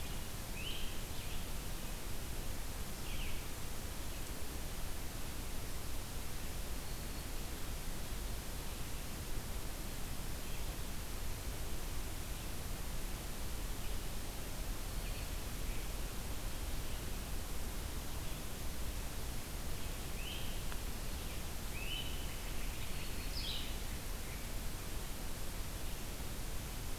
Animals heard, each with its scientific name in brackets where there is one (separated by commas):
Great Crested Flycatcher (Myiarchus crinitus), Black-throated Green Warbler (Setophaga virens), Red-eyed Vireo (Vireo olivaceus)